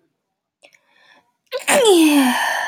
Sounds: Sneeze